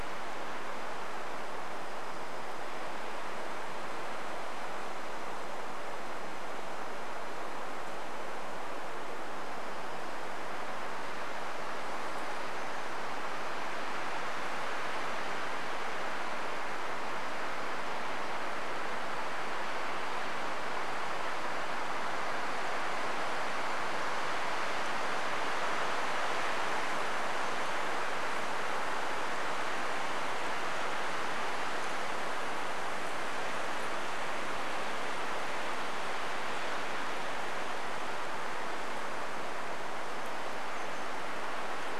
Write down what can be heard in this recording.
insect buzz, warbler song